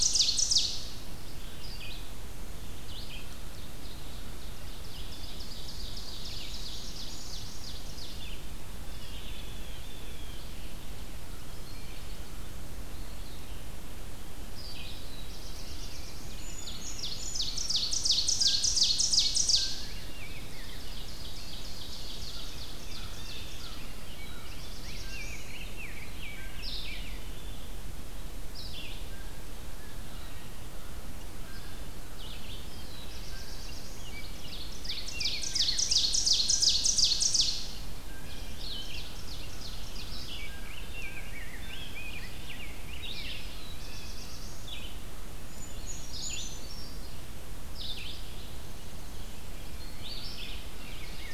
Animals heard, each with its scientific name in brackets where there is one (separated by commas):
Red-eyed Vireo (Vireo olivaceus), Rose-breasted Grosbeak (Pheucticus ludovicianus), American Crow (Corvus brachyrhynchos), Brown Creeper (Certhia americana), Ovenbird (Seiurus aurocapilla), Black-throated Blue Warbler (Setophaga caerulescens), Chestnut-sided Warbler (Setophaga pensylvanica), Blue Jay (Cyanocitta cristata)